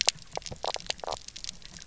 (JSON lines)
{"label": "biophony, knock croak", "recorder": "SoundTrap 300"}